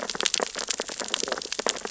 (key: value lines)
label: biophony, sea urchins (Echinidae)
recorder: SoundTrap 600 or HydroMoth